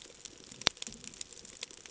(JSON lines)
{"label": "ambient", "recorder": "HydroMoth"}